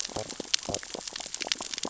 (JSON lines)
{"label": "biophony, stridulation", "recorder": "SoundTrap 600 or HydroMoth"}